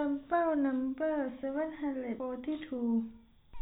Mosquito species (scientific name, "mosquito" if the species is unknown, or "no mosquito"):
no mosquito